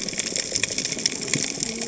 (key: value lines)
label: biophony, cascading saw
recorder: HydroMoth